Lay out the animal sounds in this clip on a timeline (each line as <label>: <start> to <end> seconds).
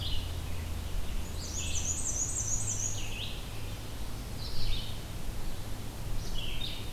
Red-eyed Vireo (Vireo olivaceus): 0.0 to 6.9 seconds
Black-and-white Warbler (Mniotilta varia): 1.2 to 3.3 seconds